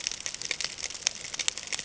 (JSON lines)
{"label": "ambient", "recorder": "HydroMoth"}